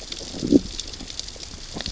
{"label": "biophony, growl", "recorder": "SoundTrap 600 or HydroMoth"}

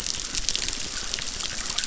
{"label": "biophony, chorus", "recorder": "SoundTrap 600"}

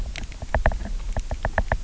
{"label": "biophony, knock", "recorder": "SoundTrap 300"}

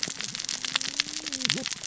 {"label": "biophony, cascading saw", "recorder": "SoundTrap 600 or HydroMoth"}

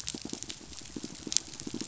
{"label": "biophony, pulse", "recorder": "SoundTrap 500"}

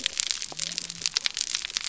{"label": "biophony", "recorder": "SoundTrap 300"}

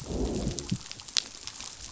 {"label": "biophony, growl", "recorder": "SoundTrap 500"}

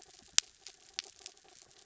{"label": "anthrophony, mechanical", "recorder": "SoundTrap 300"}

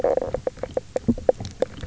{"label": "biophony, knock croak", "recorder": "SoundTrap 300"}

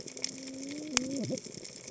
{"label": "biophony, cascading saw", "recorder": "HydroMoth"}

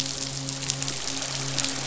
{"label": "biophony, midshipman", "recorder": "SoundTrap 500"}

